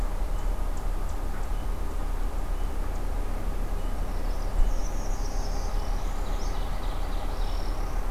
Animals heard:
Ovenbird (Seiurus aurocapilla)
Northern Parula (Setophaga americana)

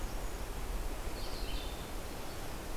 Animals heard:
Blue-headed Vireo (Vireo solitarius)

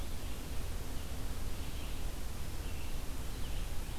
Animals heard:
Red-eyed Vireo (Vireo olivaceus)

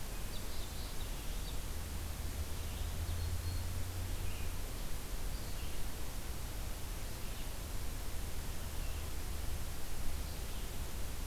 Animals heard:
unidentified call
Red-eyed Vireo (Vireo olivaceus)

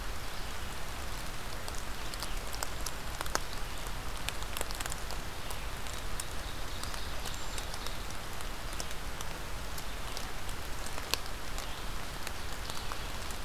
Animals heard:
Brown Creeper (Certhia americana)
Ovenbird (Seiurus aurocapilla)

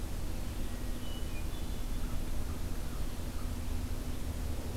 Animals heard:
Hermit Thrush (Catharus guttatus)

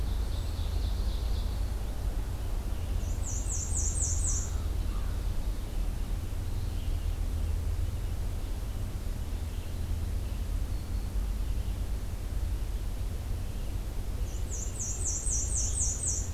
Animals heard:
American Crow (Corvus brachyrhynchos)
Black-throated Green Warbler (Setophaga virens)
Ovenbird (Seiurus aurocapilla)
Red-eyed Vireo (Vireo olivaceus)
Black-and-white Warbler (Mniotilta varia)
Hermit Thrush (Catharus guttatus)

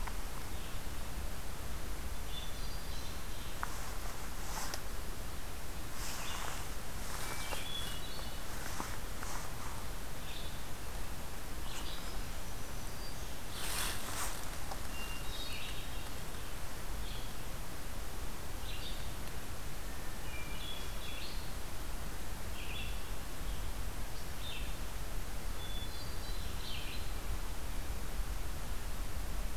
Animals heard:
Hermit Thrush (Catharus guttatus)
Black-throated Green Warbler (Setophaga virens)
Red-eyed Vireo (Vireo olivaceus)

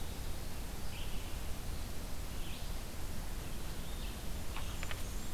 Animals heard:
Blackburnian Warbler (Setophaga fusca)
Red-eyed Vireo (Vireo olivaceus)

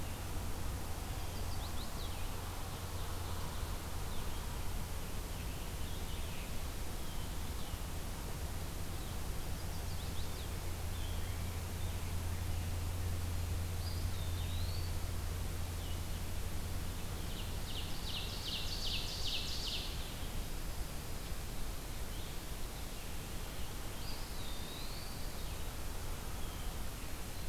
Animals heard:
Chestnut-sided Warbler (Setophaga pensylvanica)
Pine Warbler (Setophaga pinus)
Eastern Wood-Pewee (Contopus virens)
Blue-headed Vireo (Vireo solitarius)
Ovenbird (Seiurus aurocapilla)
Scarlet Tanager (Piranga olivacea)

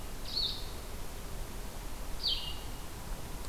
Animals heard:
Blue-headed Vireo (Vireo solitarius)

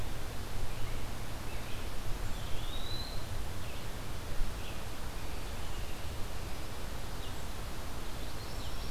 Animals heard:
Eastern Wood-Pewee (Contopus virens)
Common Yellowthroat (Geothlypis trichas)
Red-eyed Vireo (Vireo olivaceus)

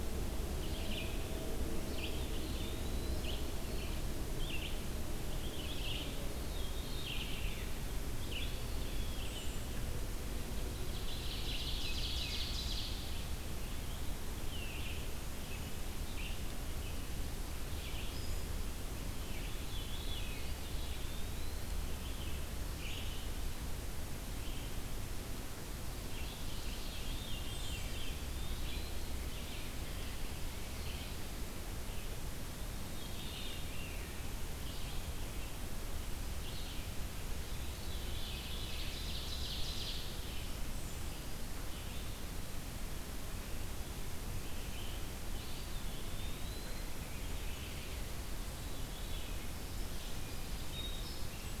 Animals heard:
Red-eyed Vireo (Vireo olivaceus)
Veery (Catharus fuscescens)
Eastern Wood-Pewee (Contopus virens)
Black-throated Green Warbler (Setophaga virens)
Ovenbird (Seiurus aurocapilla)

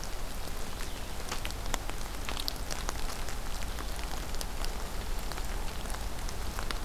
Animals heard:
Golden-crowned Kinglet (Regulus satrapa)

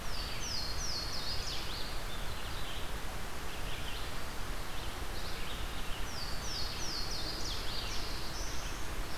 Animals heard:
Red-eyed Vireo (Vireo olivaceus)
Louisiana Waterthrush (Parkesia motacilla)
Black-throated Blue Warbler (Setophaga caerulescens)

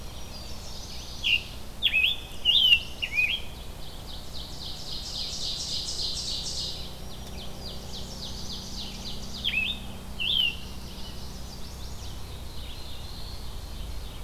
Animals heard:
Scarlet Tanager (Piranga olivacea)
Red-eyed Vireo (Vireo olivaceus)
Mourning Warbler (Geothlypis philadelphia)
Black-throated Blue Warbler (Setophaga caerulescens)
Chestnut-sided Warbler (Setophaga pensylvanica)
Black-throated Green Warbler (Setophaga virens)
Ovenbird (Seiurus aurocapilla)

